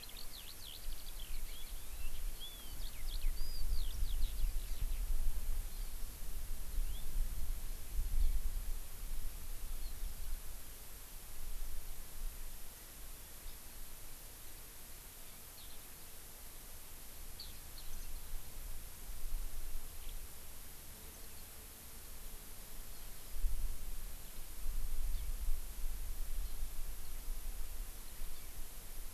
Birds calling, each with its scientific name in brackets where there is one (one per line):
Eurasian Skylark (Alauda arvensis)